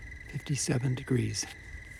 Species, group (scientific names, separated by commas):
Oecanthus californicus, Orthoptera